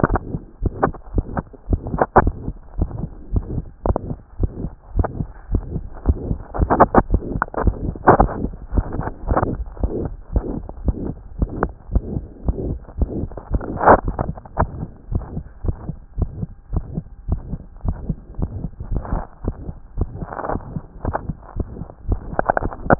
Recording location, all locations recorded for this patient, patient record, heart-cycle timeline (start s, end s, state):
tricuspid valve (TV)
aortic valve (AV)+pulmonary valve (PV)+tricuspid valve (TV)+mitral valve (MV)
#Age: Child
#Sex: Female
#Height: 121.0 cm
#Weight: 28.5 kg
#Pregnancy status: False
#Murmur: Present
#Murmur locations: aortic valve (AV)+mitral valve (MV)+pulmonary valve (PV)+tricuspid valve (TV)
#Most audible location: pulmonary valve (PV)
#Systolic murmur timing: Holosystolic
#Systolic murmur shape: Plateau
#Systolic murmur grading: III/VI or higher
#Systolic murmur pitch: High
#Systolic murmur quality: Blowing
#Diastolic murmur timing: nan
#Diastolic murmur shape: nan
#Diastolic murmur grading: nan
#Diastolic murmur pitch: nan
#Diastolic murmur quality: nan
#Outcome: Abnormal
#Campaign: 2014 screening campaign
0.10	0.20	S1
0.20	0.32	systole
0.32	0.40	S2
0.40	0.62	diastole
0.62	0.72	S1
0.72	0.84	systole
0.84	0.94	S2
0.94	1.14	diastole
1.14	1.24	S1
1.24	1.36	systole
1.36	1.44	S2
1.44	1.69	diastole
1.69	1.80	S1
1.80	1.92	systole
1.92	2.02	S2
2.02	2.23	diastole
2.23	2.34	S1
2.34	2.46	systole
2.46	2.54	S2
2.54	2.78	diastole
2.78	2.90	S1
2.90	3.00	systole
3.00	3.08	S2
3.08	3.32	diastole
3.32	3.44	S1
3.44	3.54	systole
3.54	3.64	S2
3.64	3.86	diastole
3.86	3.98	S1
3.98	4.08	systole
4.08	4.18	S2
4.18	4.40	diastole
4.40	4.50	S1
4.50	4.62	systole
4.62	4.70	S2
4.70	4.94	diastole
4.94	5.08	S1
5.08	5.18	systole
5.18	5.28	S2
5.28	5.52	diastole
5.52	5.64	S1
5.64	5.74	systole
5.74	5.84	S2
5.84	6.06	diastole
6.06	6.18	S1
6.18	6.28	systole
6.28	6.38	S2
6.38	6.58	diastole